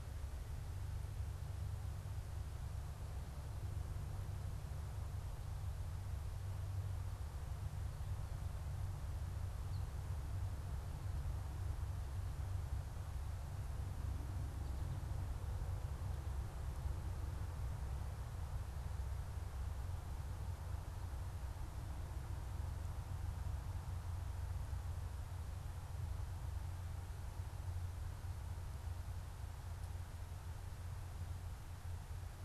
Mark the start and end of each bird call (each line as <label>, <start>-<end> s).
unidentified bird, 9.6-9.9 s